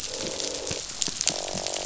{"label": "biophony, croak", "recorder": "SoundTrap 500"}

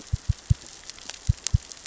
{"label": "biophony, knock", "recorder": "SoundTrap 600 or HydroMoth"}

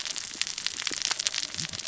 {"label": "biophony, cascading saw", "recorder": "SoundTrap 600 or HydroMoth"}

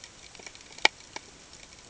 {"label": "ambient", "recorder": "HydroMoth"}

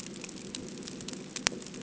{"label": "ambient", "recorder": "HydroMoth"}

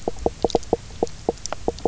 {"label": "biophony, knock croak", "recorder": "SoundTrap 300"}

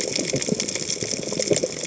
{"label": "biophony, cascading saw", "recorder": "HydroMoth"}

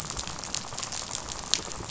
{"label": "biophony, rattle", "recorder": "SoundTrap 500"}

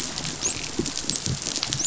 {"label": "biophony, dolphin", "recorder": "SoundTrap 500"}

